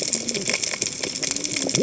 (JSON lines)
{"label": "biophony, cascading saw", "recorder": "HydroMoth"}